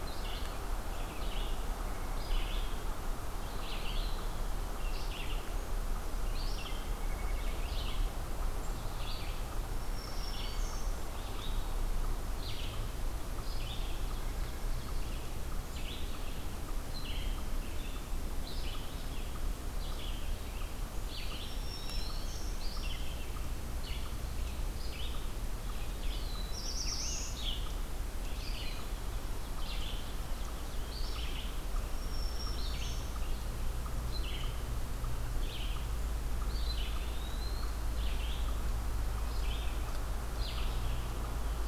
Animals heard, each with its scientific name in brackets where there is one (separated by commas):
Black-throated Green Warbler (Setophaga virens), White-breasted Nuthatch (Sitta carolinensis), Black-throated Blue Warbler (Setophaga caerulescens), Ovenbird (Seiurus aurocapilla), Eastern Wood-Pewee (Contopus virens), Red-eyed Vireo (Vireo olivaceus)